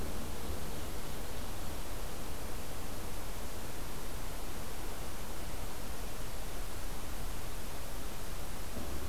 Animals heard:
forest ambience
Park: Acadia National Park